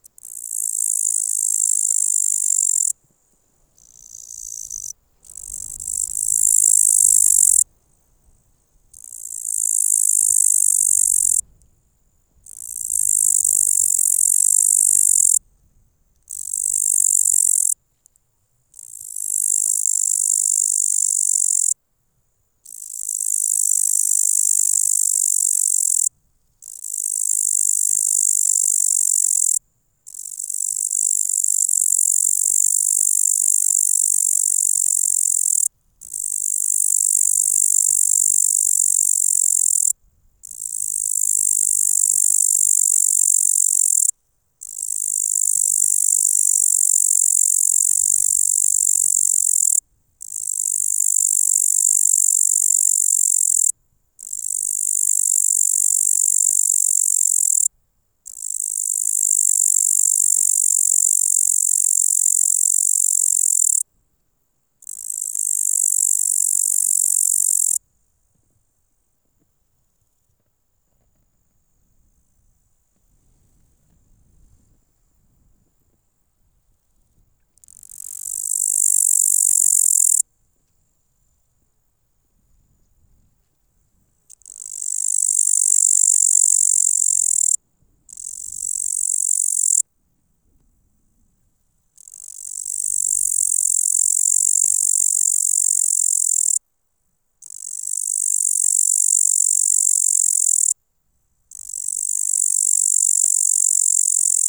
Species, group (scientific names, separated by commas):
Tettigonia cantans, Orthoptera